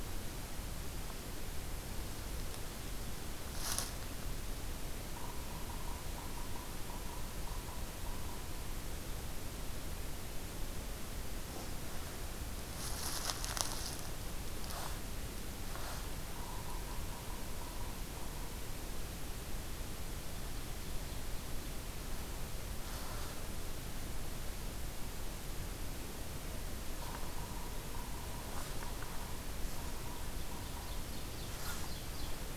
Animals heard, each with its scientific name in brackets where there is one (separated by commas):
Ovenbird (Seiurus aurocapilla), Yellow-bellied Sapsucker (Sphyrapicus varius)